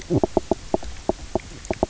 {"label": "biophony, knock croak", "recorder": "SoundTrap 300"}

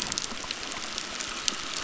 {"label": "biophony", "recorder": "SoundTrap 600"}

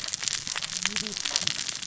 {"label": "biophony, cascading saw", "recorder": "SoundTrap 600 or HydroMoth"}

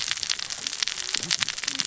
{"label": "biophony, cascading saw", "recorder": "SoundTrap 600 or HydroMoth"}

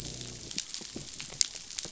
{"label": "biophony", "recorder": "SoundTrap 500"}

